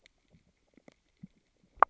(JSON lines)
{"label": "biophony, grazing", "recorder": "SoundTrap 600 or HydroMoth"}